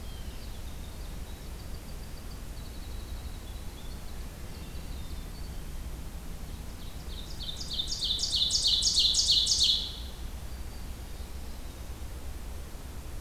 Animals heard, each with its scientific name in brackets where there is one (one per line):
Black-throated Green Warbler (Setophaga virens)
Winter Wren (Troglodytes hiemalis)
Ovenbird (Seiurus aurocapilla)
Black-throated Blue Warbler (Setophaga caerulescens)
Hermit Thrush (Catharus guttatus)